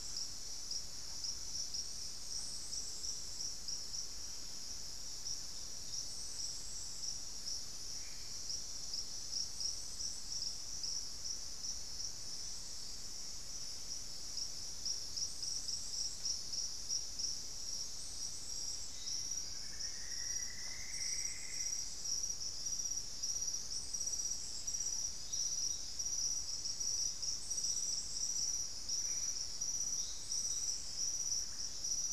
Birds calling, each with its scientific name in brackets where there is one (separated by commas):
Black-faced Antthrush (Formicarius analis), Plumbeous Antbird (Myrmelastes hyperythrus), unidentified bird